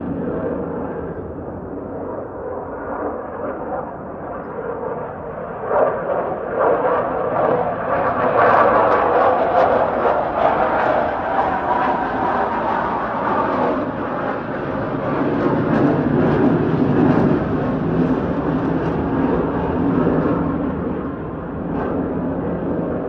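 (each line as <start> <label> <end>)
0.0 An airplane is taking off, passing near the recorder. 23.1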